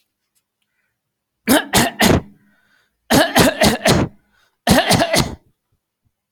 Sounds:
Cough